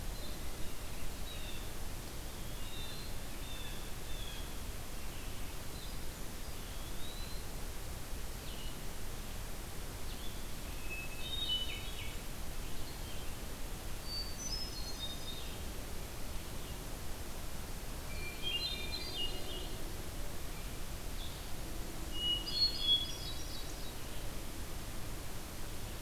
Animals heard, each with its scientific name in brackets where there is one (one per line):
Blue Jay (Cyanocitta cristata)
Hermit Thrush (Catharus guttatus)
Blue-headed Vireo (Vireo solitarius)
Eastern Wood-Pewee (Contopus virens)